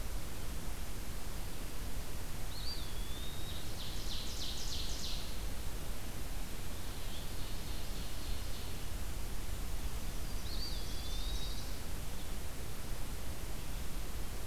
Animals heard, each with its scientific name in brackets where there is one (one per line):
Ovenbird (Seiurus aurocapilla)
Pine Warbler (Setophaga pinus)
Yellow-rumped Warbler (Setophaga coronata)
Eastern Wood-Pewee (Contopus virens)